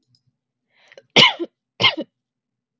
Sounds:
Cough